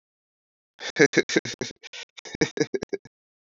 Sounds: Laughter